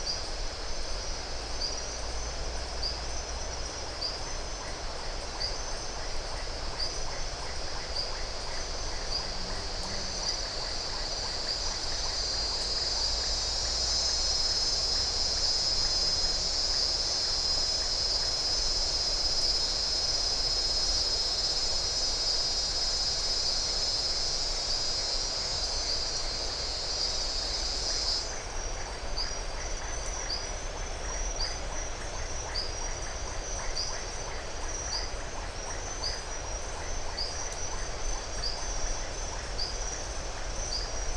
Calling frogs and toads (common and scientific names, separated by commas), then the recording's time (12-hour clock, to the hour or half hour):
marbled tropical bullfrog (Adenomera marmorata), Iporanga white-lipped frog (Leptodactylus notoaktites)
6:30pm